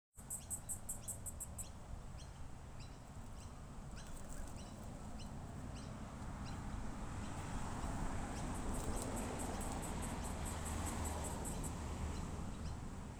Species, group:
Yoyetta celis
Cicadidae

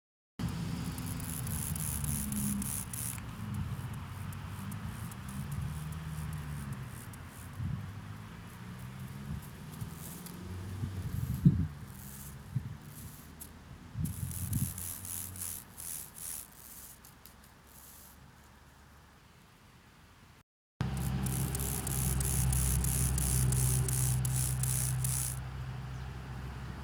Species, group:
Chorthippus mollis
Orthoptera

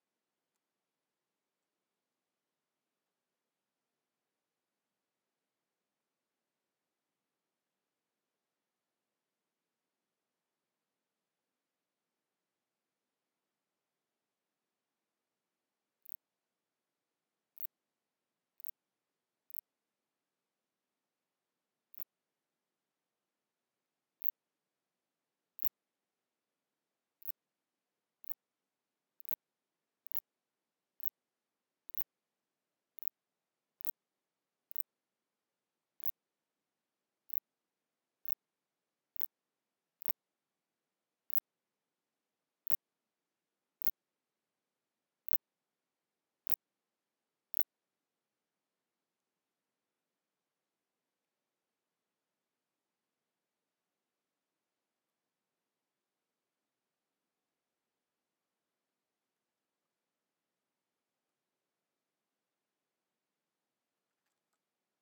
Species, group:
Phaneroptera nana
Orthoptera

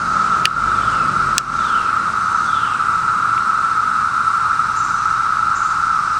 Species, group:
Magicicada septendecula
Cicadidae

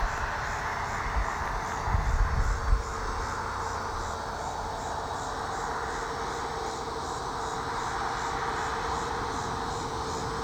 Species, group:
Megatibicen pronotalis
Cicadidae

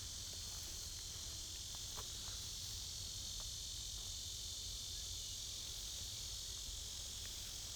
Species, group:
Neotibicen lyricen
Cicadidae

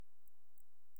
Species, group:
Canariola emarginata
Orthoptera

